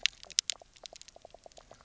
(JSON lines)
{"label": "biophony, knock croak", "recorder": "SoundTrap 300"}